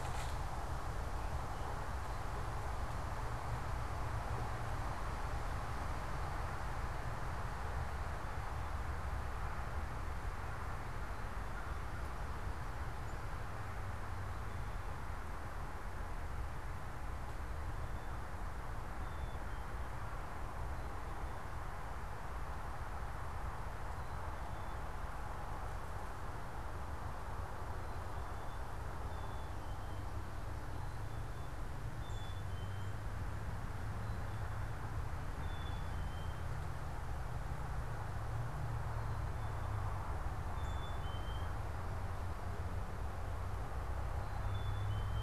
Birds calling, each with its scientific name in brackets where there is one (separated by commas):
Black-capped Chickadee (Poecile atricapillus)